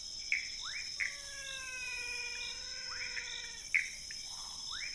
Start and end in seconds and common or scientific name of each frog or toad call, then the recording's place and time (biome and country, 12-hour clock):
0.0	4.9	rufous frog
0.0	4.9	Pithecopus azureus
1.0	3.7	menwig frog
Cerrado, Brazil, 12:00am